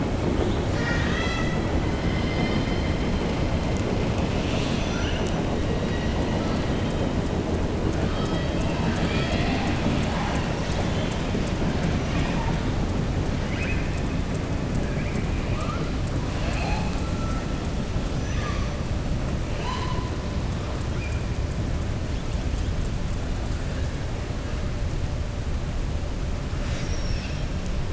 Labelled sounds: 0.4	1.6	killer whale, southern resident, 1.2 to 7.3 kHz
8.7	10.5	killer whale, southern resident, 0.60 to 7.7 kHz
18.1	18.7	killer whale, southern resident, 1.1 to 6.1 kHz

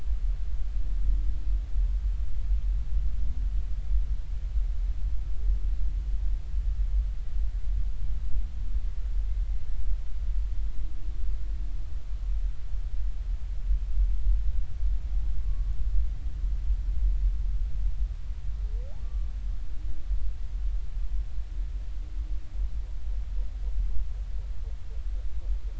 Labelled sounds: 19.0	19.3	humpback whale, 1.1 to 1.2 kHz

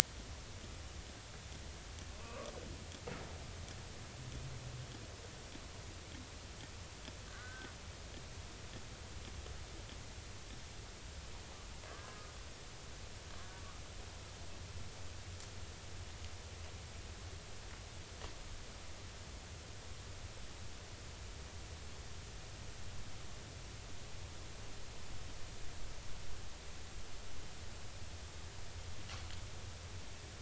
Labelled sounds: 2.2	2.5	killer whale, 0.93 to 1.2 kHz
7.3	7.7	killer whale, 1.1 to 1.7 kHz
11.8	12.2	killer whale, 1.5 to 1.7 kHz

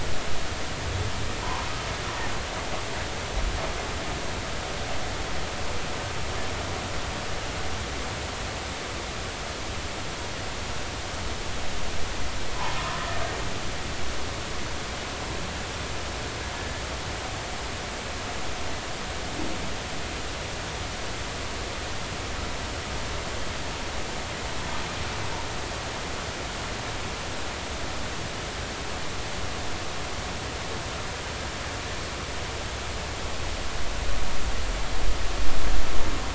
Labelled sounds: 1.4	1.7	humpback whale, 0.83 to 1.2 kHz

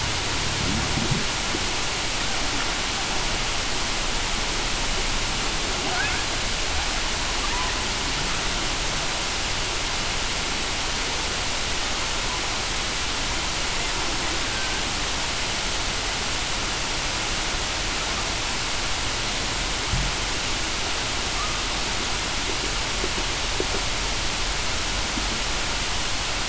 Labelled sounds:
14.4	14.8	killer whale, Bigg's (transient), 1.5 to 1.6 kHz

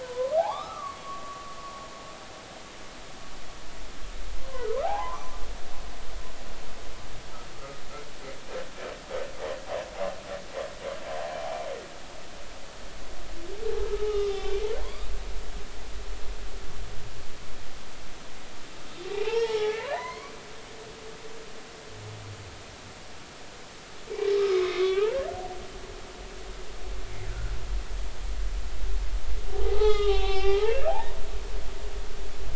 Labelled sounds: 0.0	1.4	humpback whale, 0.80 to 1.4 kHz
4.8	5.3	humpback whale, 0.80 to 1.3 kHz
14.1	15.1	humpback whale, 0.93 to 3.7 kHz
19.1	20.3	humpback whale, 0.80 to 5.7 kHz
24.3	25.1	humpback whale, 1.0 to 5.5 kHz
29.5	31.0	humpback whale, 0.80 to 6.0 kHz

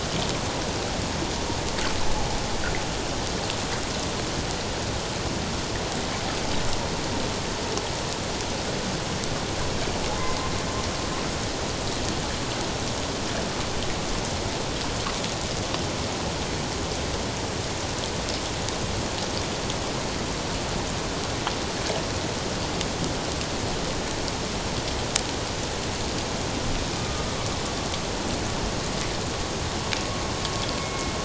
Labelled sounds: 27.0	27.3	humpback whale, 1.19 to 1.25 kHz
30.8	31.1	humpback whale, 2.1 to 2.2 kHz

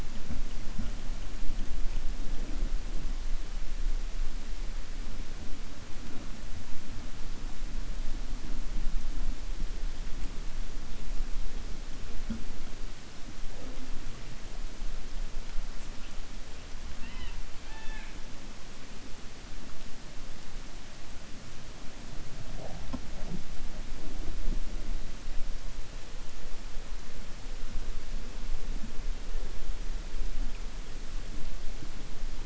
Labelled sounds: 17.6	18.2	killer whale, 0.81 to 3.6 kHz

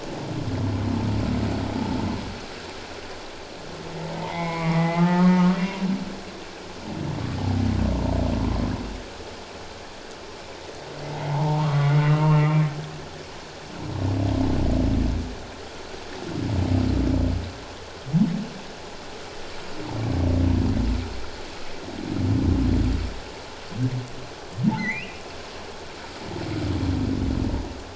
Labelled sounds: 4.2	5.9	humpback whale, 0.78 to 2.9 kHz
11.2	12.7	humpback whale, 0.78 to 2.9 kHz
24.7	25.2	humpback whale, 1.8 to 4.2 kHz

